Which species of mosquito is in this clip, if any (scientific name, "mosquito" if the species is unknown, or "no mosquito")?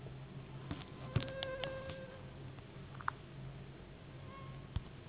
Anopheles gambiae s.s.